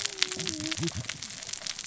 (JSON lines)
{"label": "biophony, cascading saw", "recorder": "SoundTrap 600 or HydroMoth"}